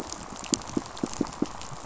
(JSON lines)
{"label": "biophony, pulse", "recorder": "SoundTrap 500"}